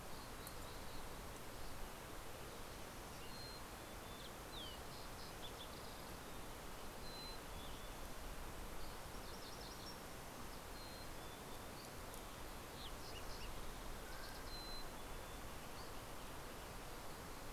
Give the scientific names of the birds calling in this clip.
Poecile gambeli, Pipilo chlorurus, Geothlypis tolmiei, Oreortyx pictus, Empidonax oberholseri